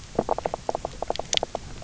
{"label": "biophony, knock croak", "recorder": "SoundTrap 300"}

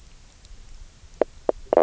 {"label": "biophony, knock croak", "recorder": "SoundTrap 300"}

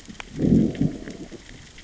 {"label": "biophony, growl", "recorder": "SoundTrap 600 or HydroMoth"}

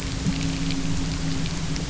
{"label": "anthrophony, boat engine", "recorder": "SoundTrap 300"}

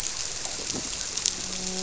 {"label": "biophony, grouper", "recorder": "SoundTrap 300"}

